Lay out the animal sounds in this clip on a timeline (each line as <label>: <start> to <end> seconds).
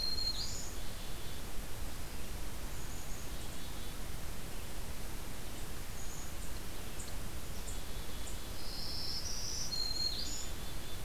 Black-throated Green Warbler (Setophaga virens): 0.0 to 0.8 seconds
Black-capped Chickadee (Poecile atricapillus): 0.1 to 1.5 seconds
Black-capped Chickadee (Poecile atricapillus): 2.6 to 4.0 seconds
Black-capped Chickadee (Poecile atricapillus): 5.8 to 6.4 seconds
Black-capped Chickadee (Poecile atricapillus): 7.4 to 8.9 seconds
Black-throated Green Warbler (Setophaga virens): 8.5 to 10.5 seconds
Black-capped Chickadee (Poecile atricapillus): 9.6 to 11.0 seconds